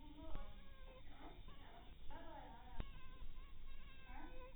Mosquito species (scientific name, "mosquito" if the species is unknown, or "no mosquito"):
mosquito